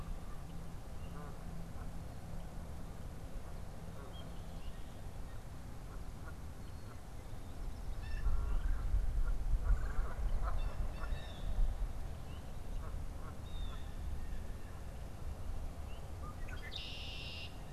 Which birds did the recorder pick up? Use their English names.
Blue Jay, Red-bellied Woodpecker, Red-winged Blackbird